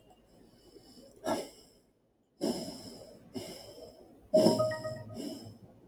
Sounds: Sigh